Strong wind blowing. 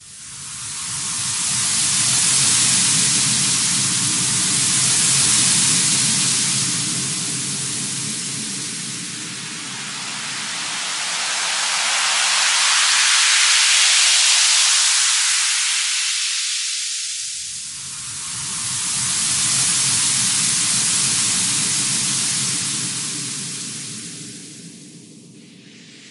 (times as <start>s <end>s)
24.8s 26.1s